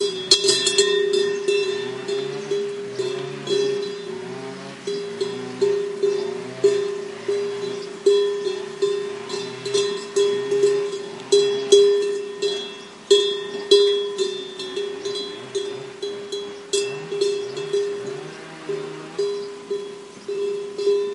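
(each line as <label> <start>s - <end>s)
A cowbell ringing repeatedly. 0.0s - 21.1s
A lawn mower is turning on and off in the distance. 0.0s - 21.1s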